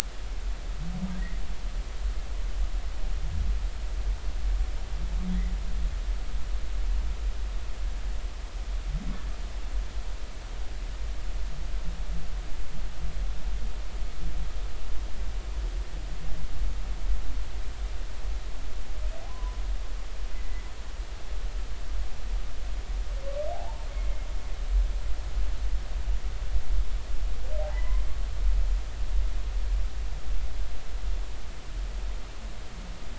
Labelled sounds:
19.3	19.6	humpback whale, 0.93 to 1.2 kHz
20.3	20.6	humpback whale, 1.9 to 2.1 kHz
23.5	24.3	humpback whale, 0.80 to 2.3 kHz
27.6	28.0	humpback whale, 0.80 to 2.1 kHz

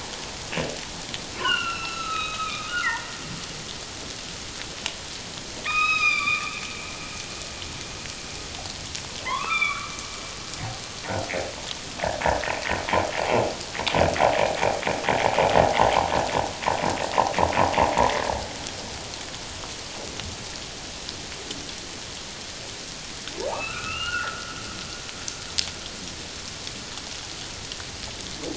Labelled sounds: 1.4	3.1	humpback whale, 1.2 to 6.8 kHz
5.6	6.6	humpback whale, 0.94 to 5.2 kHz
9.2	9.9	humpback whale, 0.84 to 3.7 kHz
23.5	24.5	humpback whale, 0.78 to 2.9 kHz

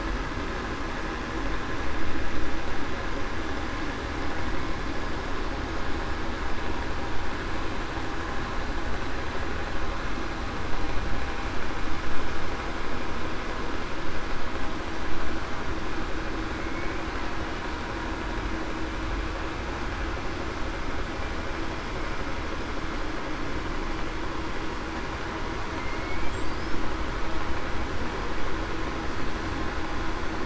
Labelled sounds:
16.6	17.0	killer whale, Bigg's (transient), 2.2 to 2.3 kHz

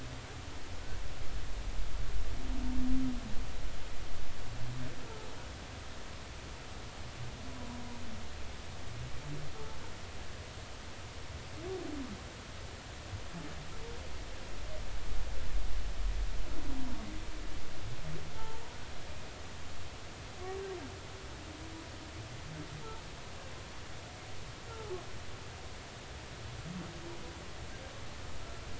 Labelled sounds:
18.4	18.6	humpback whale, 0.83 to 0.93 kHz
24.7	25.0	humpback whale, 0.80 to 0.93 kHz

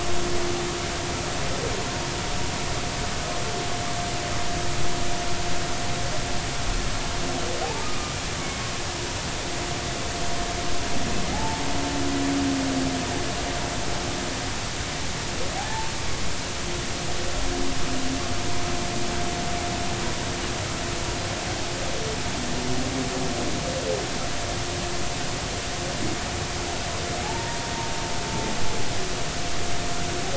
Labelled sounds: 7.6	8.2	humpback whale, 0.80 to 1.3 kHz
11.3	11.7	humpback whale, 0.80 to 0.93 kHz
15.6	15.9	humpback whale, 0.80 to 0.96 kHz
27.2	27.6	humpback whale, 0.80 to 0.99 kHz

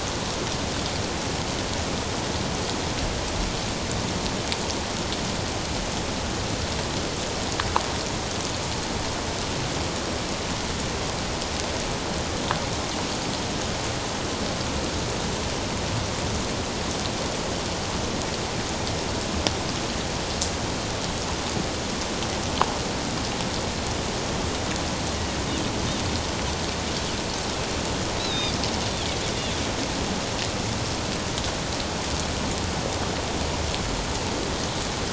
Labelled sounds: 28.2	28.6	Pacific white-sided dolphin, 3.5 to 5.1 kHz

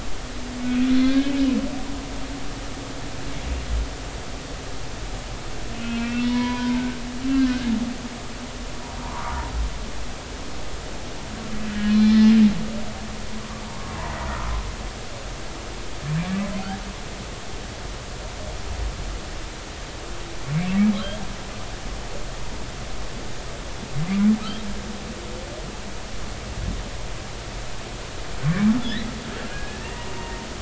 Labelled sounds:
0.9	1.5	humpback whale, 1.5 to 4.3 kHz
5.8	7.7	humpback whale, 0.86 to 3.2 kHz
9.0	9.4	humpback whale, 0.86 to 1.3 kHz
11.9	12.4	humpback whale, 1.9 to 4.2 kHz
29.5	30.3	humpback whale, 1.6 to 2.8 kHz

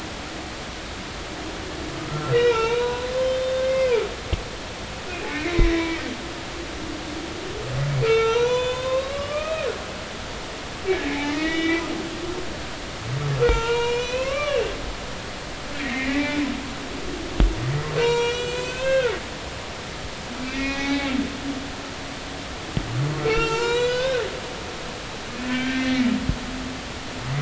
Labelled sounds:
2.1	4.0	humpback whale, 0.86 to 4.0 kHz
5.4	6.0	humpback whale, 1.9 to 2.5 kHz
8.0	9.7	humpback whale, 0.83 to 7.1 kHz
11.1	11.8	humpback whale, 1.8 to 4.0 kHz
13.4	14.6	humpback whale, 0.86 to 5.8 kHz
15.8	16.4	humpback whale, 1.8 to 2.3 kHz
17.9	20.1	humpback whale, 0.90 to 7.8 kHz
20.4	21.1	humpback whale, 0.80 to 3.7 kHz
23.2	24.2	humpback whale, 0.83 to 7.4 kHz
25.3	26.1	humpback whale, 1.5 to 3.2 kHz

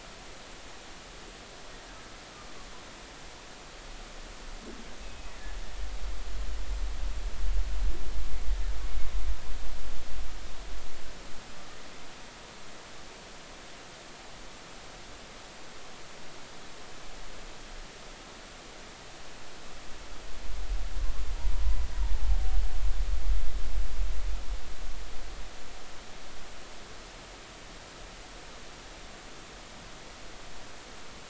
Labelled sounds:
5.0	5.3	humpback whale, 2.5 to 2.7 kHz

